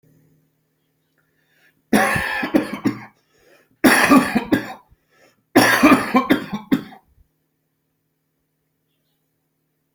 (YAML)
expert_labels:
- quality: good
  cough_type: wet
  dyspnea: false
  wheezing: false
  stridor: false
  choking: false
  congestion: false
  nothing: true
  diagnosis: lower respiratory tract infection
  severity: mild
age: 48
gender: male
respiratory_condition: true
fever_muscle_pain: false
status: symptomatic